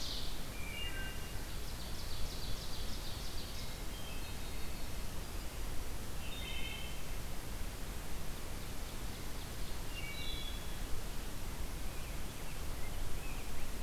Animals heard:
Hermit Thrush (Catharus guttatus), Rose-breasted Grosbeak (Pheucticus ludovicianus), Wood Thrush (Hylocichla mustelina), Ovenbird (Seiurus aurocapilla)

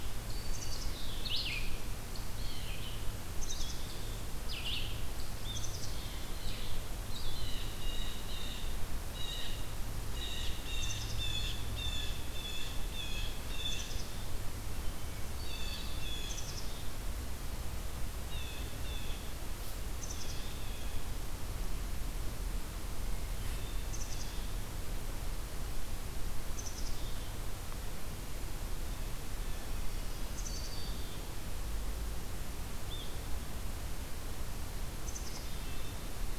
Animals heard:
Black-capped Chickadee (Poecile atricapillus), Blue Jay (Cyanocitta cristata), Red-eyed Vireo (Vireo olivaceus)

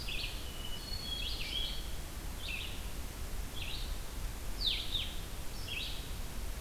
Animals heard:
Hermit Thrush (Catharus guttatus), Red-eyed Vireo (Vireo olivaceus), Blue-headed Vireo (Vireo solitarius)

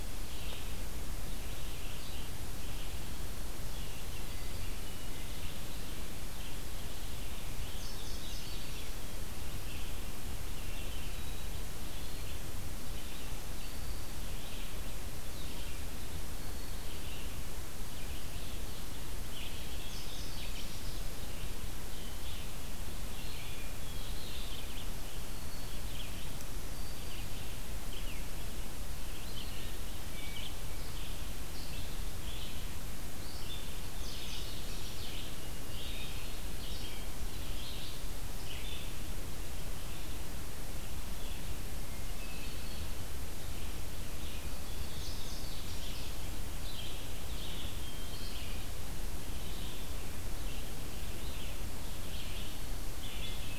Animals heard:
Red-eyed Vireo (Vireo olivaceus), Hermit Thrush (Catharus guttatus), Black-throated Green Warbler (Setophaga virens), Indigo Bunting (Passerina cyanea), Wood Thrush (Hylocichla mustelina)

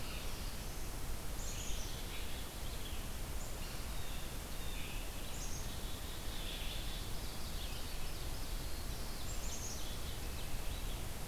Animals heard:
Black-throated Blue Warbler (Setophaga caerulescens), Blue Jay (Cyanocitta cristata), Black-capped Chickadee (Poecile atricapillus), Red-eyed Vireo (Vireo olivaceus), Ovenbird (Seiurus aurocapilla)

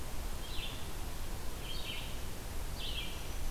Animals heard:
Red-eyed Vireo (Vireo olivaceus), Black-throated Green Warbler (Setophaga virens)

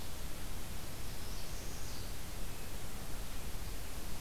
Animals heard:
Northern Parula (Setophaga americana)

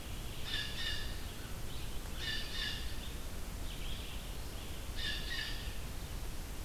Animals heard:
Red-eyed Vireo (Vireo olivaceus), Blue Jay (Cyanocitta cristata)

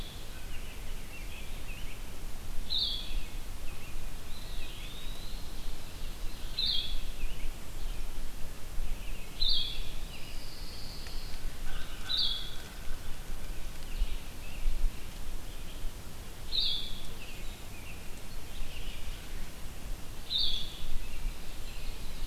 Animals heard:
Eastern Wood-Pewee (Contopus virens), Ovenbird (Seiurus aurocapilla), Pine Warbler (Setophaga pinus), American Robin (Turdus migratorius), Red-eyed Vireo (Vireo olivaceus), Blue-headed Vireo (Vireo solitarius), American Crow (Corvus brachyrhynchos)

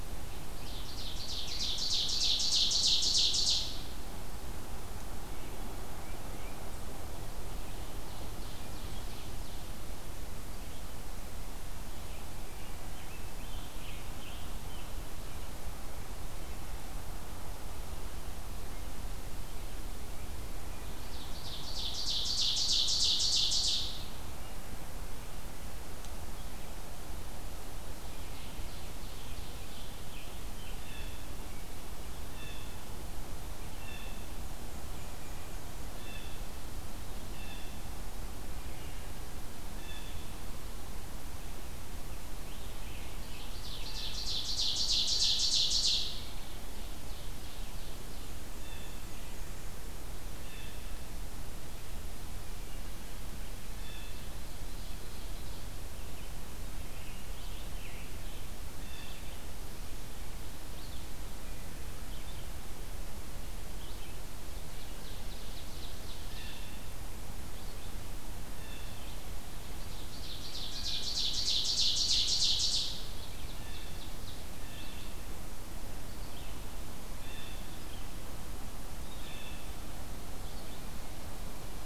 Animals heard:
Wood Thrush (Hylocichla mustelina), Ovenbird (Seiurus aurocapilla), American Robin (Turdus migratorius), Scarlet Tanager (Piranga olivacea), Blue Jay (Cyanocitta cristata), Tufted Titmouse (Baeolophus bicolor), Red-eyed Vireo (Vireo olivaceus), Black-and-white Warbler (Mniotilta varia)

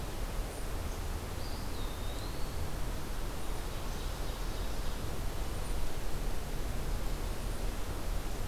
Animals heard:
Eastern Wood-Pewee (Contopus virens), Ovenbird (Seiurus aurocapilla)

